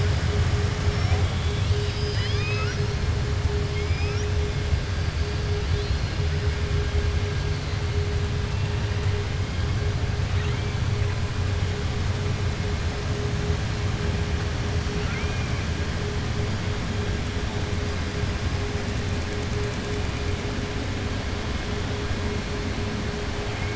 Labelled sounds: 1.3	2.9	killer whale, southern resident, 1.2 to 6.0 kHz
3.6	4.2	killer whale, southern resident, 2.1 to 3.2 kHz

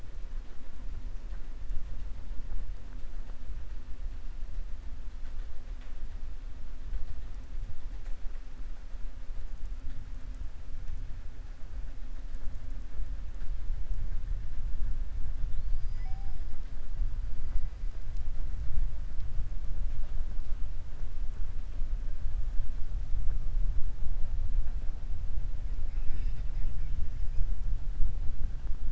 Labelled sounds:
15.4	16.4	killer whale, southern resident, 3.4 to 5.4 kHz

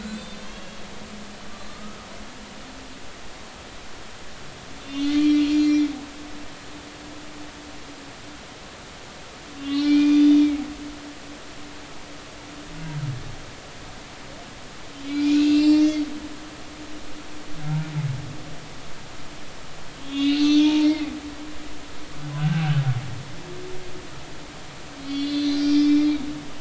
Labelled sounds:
0.0	2.1	humpback whale, 1.2 to 7.7 kHz
4.8	5.9	humpback whale, 2.2 to 7.0 kHz
9.6	10.5	humpback whale, 2.2 to 4.9 kHz
15.0	16.0	humpback whale, 2.1 to 7.0 kHz
20.0	21.1	humpback whale, 0.86 to 6.0 kHz
22.4	22.6	humpback whale, 1.4 to 1.6 kHz
25.0	26.2	humpback whale, 2.3 to 5.3 kHz

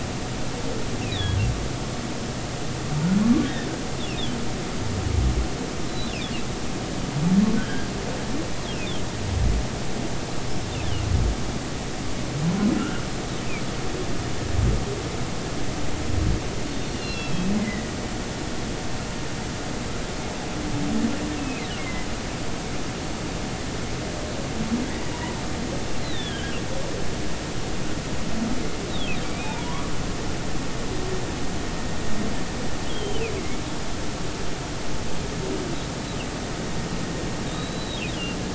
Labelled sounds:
1.1	1.4	humpback whale, 1.6 to 4.0 kHz
5.9	6.1	humpback whale, 3.9 to 4.0 kHz
7.5	7.9	humpback whale, 1.4 to 1.8 kHz
12.8	13.0	humpback whale, 1.3 to 1.6 kHz
16.8	17.9	humpback whale, 1.9 to 4.4 kHz
21.4	22.1	humpback whale, 2.0 to 2.8 kHz
26.0	26.5	humpback whale, 1.5 to 4.2 kHz
29.4	29.9	humpback whale, 0.83 to 1.3 kHz
30.2	30.7	humpback whale, 2.2 to 2.6 kHz
32.9	33.6	humpback whale, 2.0 to 3.4 kHz
37.5	38.0	humpback whale, 3.6 to 4.1 kHz

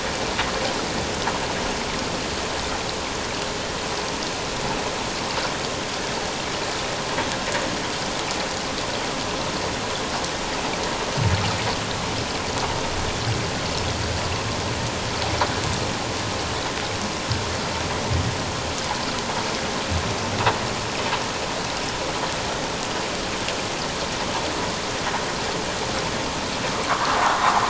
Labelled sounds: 26.9	27.2	vessel noise, 0.94 to 1.4 kHz

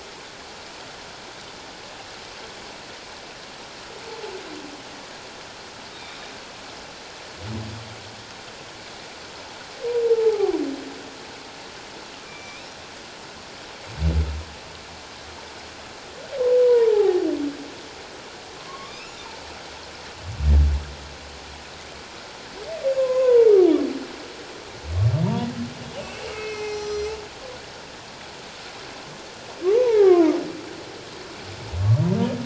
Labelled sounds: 5.9	6.3	humpback whale, 3.6 to 3.8 kHz
10.0	10.6	humpback whale, 0.78 to 0.94 kHz
12.3	12.7	humpback whale, 2.3 to 2.7 kHz
16.6	17.2	humpback whale, 0.78 to 1.9 kHz
18.7	19.2	humpback whale, 1.0 to 2.9 kHz
22.8	23.6	humpback whale, 0.88 to 2.7 kHz
26.3	27.2	humpback whale, 0.78 to 7.9 kHz
29.7	30.3	humpback whale, 0.78 to 2.3 kHz

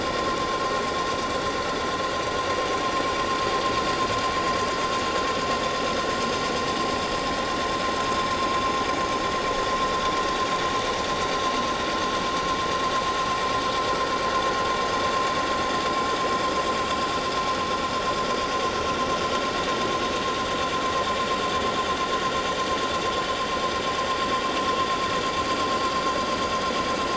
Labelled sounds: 0.0	0.3	vessel noise, 5.6 to 5.7 kHz

